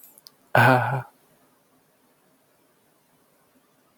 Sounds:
Laughter